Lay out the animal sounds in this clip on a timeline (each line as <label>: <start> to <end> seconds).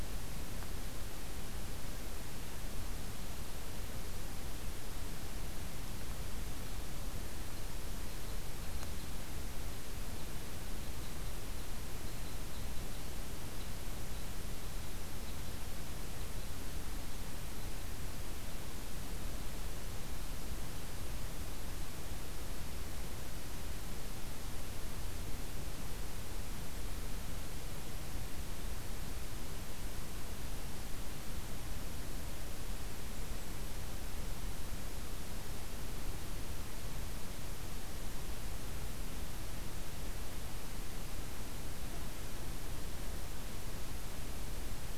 Red Crossbill (Loxia curvirostra): 7.8 to 15.4 seconds